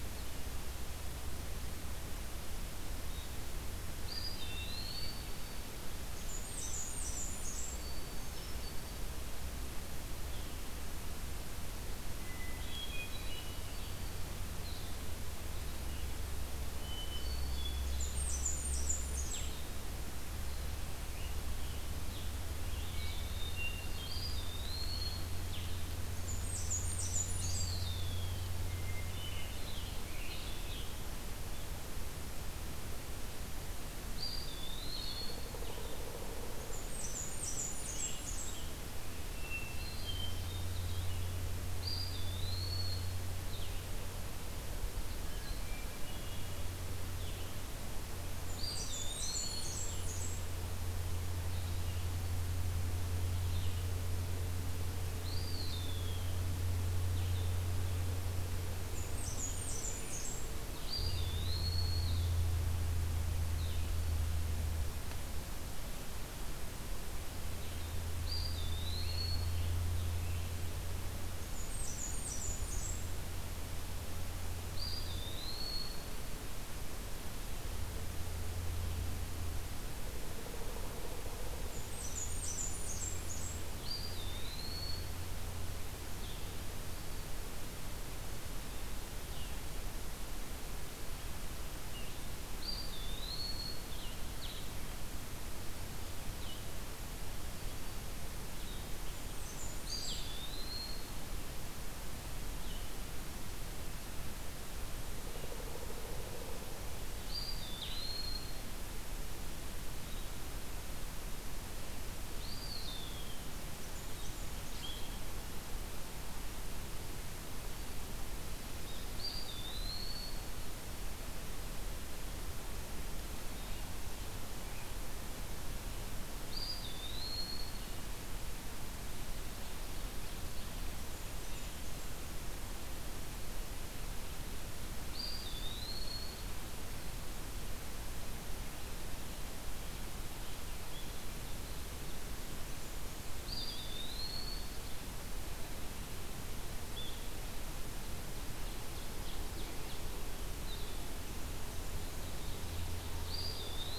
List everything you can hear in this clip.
Blue-headed Vireo, Eastern Wood-Pewee, Hermit Thrush, Blackburnian Warbler, Scarlet Tanager, Pileated Woodpecker, Ovenbird